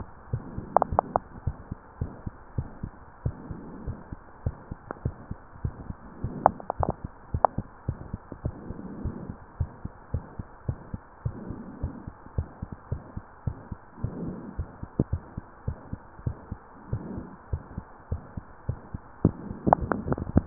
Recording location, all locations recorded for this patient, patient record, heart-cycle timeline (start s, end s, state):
mitral valve (MV)
aortic valve (AV)+pulmonary valve (PV)+tricuspid valve (TV)+mitral valve (MV)
#Age: Child
#Sex: Female
#Height: 128.0 cm
#Weight: 37.0 kg
#Pregnancy status: False
#Murmur: Present
#Murmur locations: aortic valve (AV)+mitral valve (MV)+pulmonary valve (PV)+tricuspid valve (TV)
#Most audible location: pulmonary valve (PV)
#Systolic murmur timing: Holosystolic
#Systolic murmur shape: Plateau
#Systolic murmur grading: II/VI
#Systolic murmur pitch: Medium
#Systolic murmur quality: Blowing
#Diastolic murmur timing: nan
#Diastolic murmur shape: nan
#Diastolic murmur grading: nan
#Diastolic murmur pitch: nan
#Diastolic murmur quality: nan
#Outcome: Abnormal
#Campaign: 2015 screening campaign
0.00	9.36	unannotated
9.36	9.56	diastole
9.56	9.72	S1
9.72	9.84	systole
9.84	9.94	S2
9.94	10.14	diastole
10.14	10.26	S1
10.26	10.38	systole
10.38	10.46	S2
10.46	10.66	diastole
10.66	10.80	S1
10.80	10.90	systole
10.90	11.00	S2
11.00	11.22	diastole
11.22	11.36	S1
11.36	11.48	systole
11.48	11.58	S2
11.58	11.80	diastole
11.80	11.92	S1
11.92	12.04	systole
12.04	12.14	S2
12.14	12.34	diastole
12.34	12.48	S1
12.48	12.58	systole
12.58	12.68	S2
12.68	12.88	diastole
12.88	13.02	S1
13.02	13.14	systole
13.14	13.24	S2
13.24	13.46	diastole
13.46	13.58	S1
13.58	13.68	systole
13.68	13.78	S2
13.78	14.02	diastole
14.02	14.16	S1
14.16	14.22	systole
14.22	14.38	S2
14.38	14.56	diastole
14.56	14.70	S1
14.70	14.82	systole
14.82	14.90	S2
14.90	15.10	diastole
15.10	15.24	S1
15.24	15.36	systole
15.36	15.44	S2
15.44	15.66	diastole
15.66	15.78	S1
15.78	15.88	systole
15.88	16.00	S2
16.00	16.24	diastole
16.24	16.38	S1
16.38	16.52	systole
16.52	16.62	S2
16.62	16.90	diastole
16.90	17.06	S1
17.06	17.12	systole
17.12	17.24	S2
17.24	17.46	diastole
17.46	17.64	S1
17.64	17.76	systole
17.76	17.84	S2
17.84	18.10	diastole
18.10	18.22	S1
18.22	18.34	systole
18.34	18.44	S2
18.44	18.66	diastole
18.66	20.46	unannotated